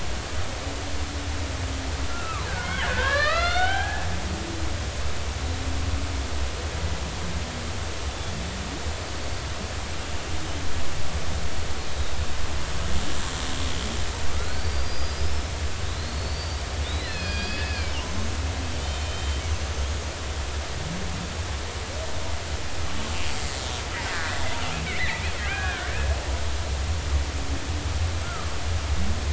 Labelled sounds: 2.1	4.0	killer whale, Bigg's (transient), 0.80 to 5.0 kHz
14.3	15.5	killer whale, Bigg's (transient), 1.1 to 5.3 kHz
15.9	17.9	killer whale, Bigg's (transient), 1.5 to 5.2 kHz
18.8	19.9	killer whale, Bigg's (transient), 3.0 to 6.4 kHz
24.1	24.4	killer whale, Bigg's (transient), 1.3 to 1.9 kHz
24.9	25.9	killer whale, Bigg's (transient), 1.4 to 2.6 kHz
28.2	28.5	killer whale, Bigg's (transient), 1.1 to 1.5 kHz

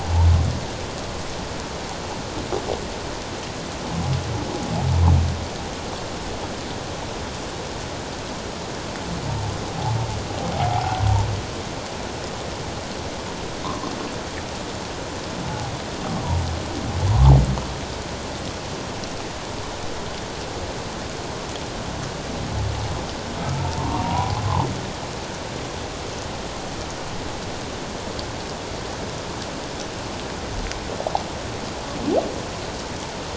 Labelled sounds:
10.5	11.0	humpback whale, 0.78 to 1.0 kHz
13.6	13.9	humpback whale, 0.97 to 1.2 kHz
15.5	15.7	humpback whale, 0.78 to 0.91 kHz
23.5	24.4	humpback whale, 0.78 to 1.2 kHz

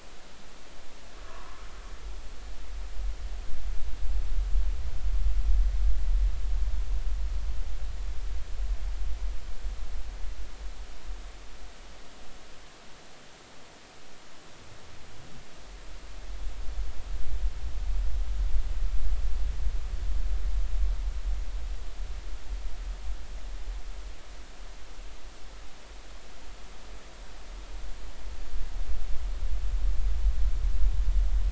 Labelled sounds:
1.1	1.6	humpback whale, 0.93 to 1.3 kHz

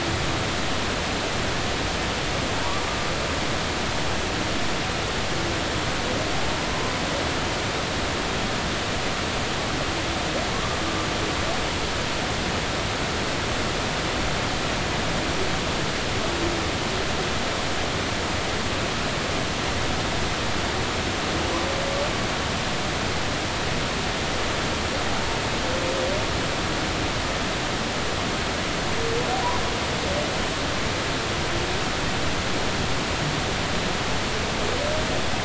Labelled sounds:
10.5	10.8	humpback whale, 1.0 to 1.2 kHz

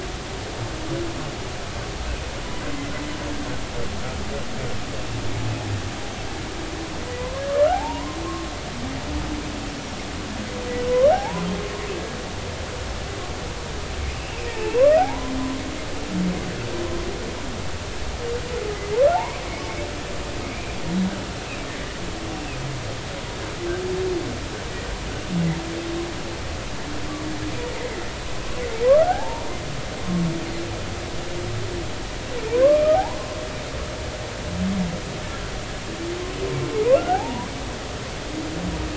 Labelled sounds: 7.0	8.2	humpback whale, 0.80 to 2.1 kHz
11.1	11.5	humpback whale, 0.80 to 1.1 kHz
14.5	15.3	humpback whale, 0.80 to 2.8 kHz
20.4	20.7	humpback whale, 2.1 to 2.5 kHz
28.8	29.5	humpback whale, 0.80 to 1.7 kHz
32.5	33.2	humpback whale, 0.80 to 1.2 kHz
37.0	37.5	humpback whale, 0.80 to 1.7 kHz

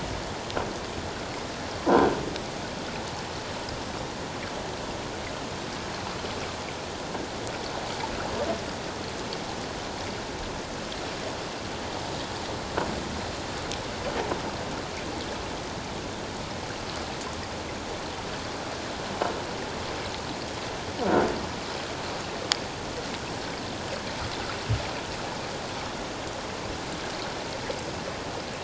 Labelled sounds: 1.9	2.1	croaking sound likely from a nearby submerged object, 1.4 to 1.6 kHz

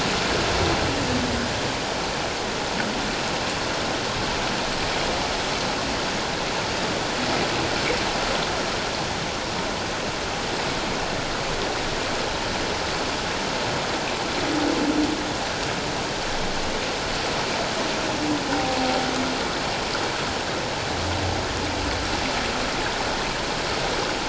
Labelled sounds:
18.5	18.8	humpback whale, 0.78 to 0.81 kHz

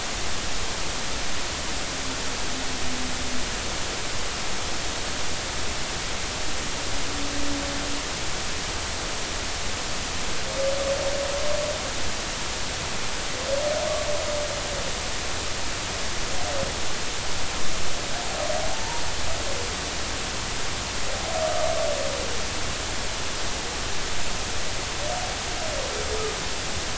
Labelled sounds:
18.7	19.0	humpback whale, 0.80 to 0.99 kHz

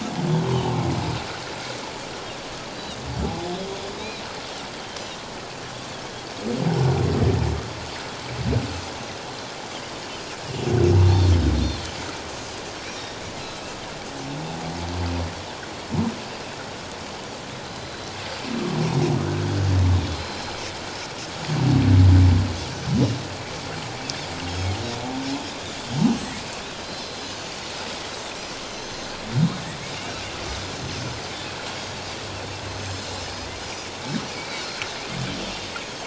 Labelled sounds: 0.5	0.8	humpback whale, 0.91 to 1.2 kHz
2.7	3.0	Pacific white-sided dolphin, 3.6 to 4.0 kHz
4.0	4.2	Pacific white-sided dolphin, 3.7 to 4.2 kHz
11.1	12.1	Pacific white-sided dolphin, 4.1 to 6.3 kHz
12.9	13.2	Pacific white-sided dolphin, 5.5 to 5.8 kHz
17.6	18.1	Pacific white-sided dolphin, 3.9 to 4.1 kHz
20.1	20.6	Pacific white-sided dolphin, 4.0 to 5.2 kHz
26.1	27.5	Pacific white-sided dolphin, 3.9 to 6.5 kHz
28.6	29.2	Pacific white-sided dolphin, 4.0 to 6.3 kHz
30.8	31.2	Pacific white-sided dolphin, 6.1 to 6.3 kHz
32.6	33.1	Pacific white-sided dolphin, 5.0 to 6.6 kHz
34.3	34.8	Pacific white-sided dolphin, 2.1 to 4.8 kHz
35.8	36.0	Pacific white-sided dolphin, 6.3 to 6.7 kHz

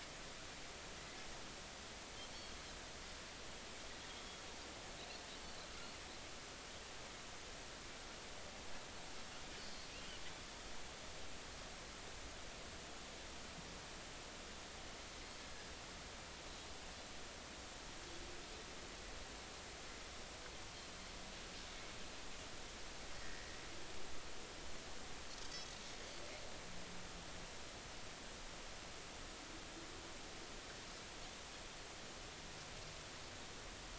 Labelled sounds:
4.1	4.4	Pacific white-sided dolphin, 3.2 to 6.7 kHz
23.2	23.5	Pacific white-sided dolphin, 1.7 to 2.0 kHz

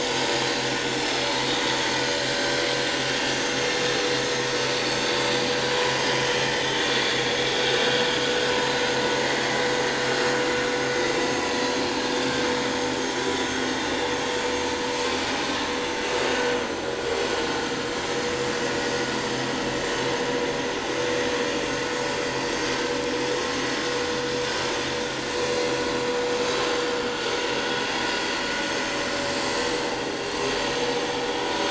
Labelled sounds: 0.7	1.2	vessel noise, 5.2 to 5.6 kHz
2.3	2.6	vessel noise, 1.5 to 1.8 kHz
6.0	6.3	vessel noise, 3.0 to 3.2 kHz
6.7	7.3	vessel noise, 3.2 to 3.6 kHz
8.4	9.0	vessel noise, 3.9 to 4.2 kHz
16.4	16.9	vessel noise, 5.9 to 6.3 kHz

